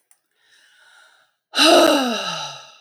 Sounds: Sigh